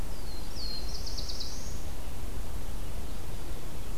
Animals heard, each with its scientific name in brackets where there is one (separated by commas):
Eastern Wood-Pewee (Contopus virens), Black-throated Blue Warbler (Setophaga caerulescens)